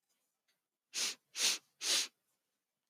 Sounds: Sniff